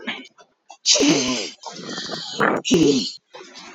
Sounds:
Sniff